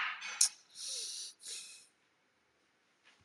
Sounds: Sigh